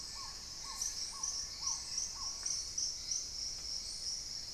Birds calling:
Black-tailed Trogon (Trogon melanurus), Long-billed Woodcreeper (Nasica longirostris), Hauxwell's Thrush (Turdus hauxwelli)

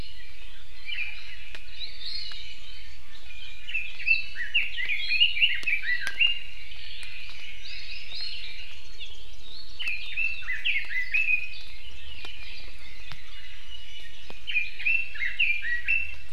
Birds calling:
Hawaii Akepa (Loxops coccineus), Red-billed Leiothrix (Leiothrix lutea), Iiwi (Drepanis coccinea)

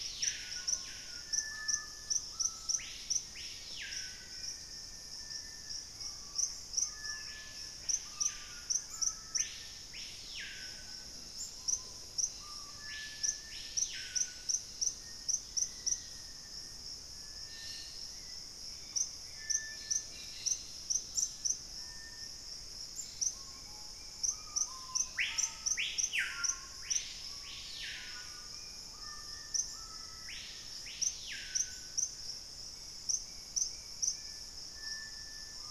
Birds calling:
unidentified bird, Collared Trogon (Trogon collaris), Black-capped Becard (Pachyramphus marginatus), Black-faced Antthrush (Formicarius analis), Dusky-capped Greenlet (Pachysylvia hypoxantha), Bright-rumped Attila (Attila spadiceus), Screaming Piha (Lipaugus vociferans), Gray Antbird (Cercomacra cinerascens), Hauxwell's Thrush (Turdus hauxwelli)

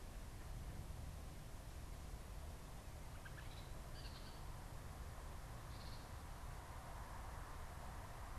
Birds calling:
unidentified bird

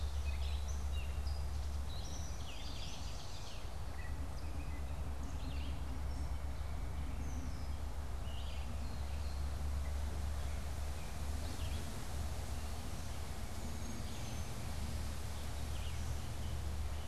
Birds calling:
Gray Catbird (Dumetella carolinensis), Ovenbird (Seiurus aurocapilla), Red-eyed Vireo (Vireo olivaceus), White-breasted Nuthatch (Sitta carolinensis)

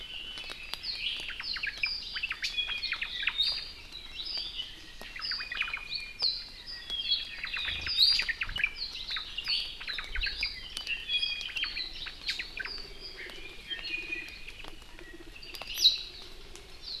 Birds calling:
Warbling White-eye (Zosterops japonicus), Iiwi (Drepanis coccinea), Apapane (Himatione sanguinea), Omao (Myadestes obscurus)

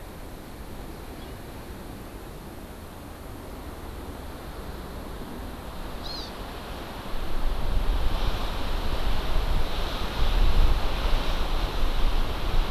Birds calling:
Hawaii Amakihi (Chlorodrepanis virens)

